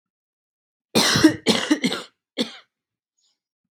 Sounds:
Cough